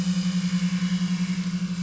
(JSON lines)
{"label": "anthrophony, boat engine", "recorder": "SoundTrap 500"}